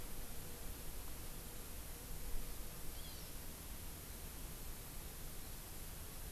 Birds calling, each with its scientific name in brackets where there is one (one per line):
Hawaii Amakihi (Chlorodrepanis virens)